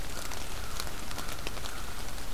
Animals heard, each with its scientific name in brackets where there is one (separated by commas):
American Crow (Corvus brachyrhynchos)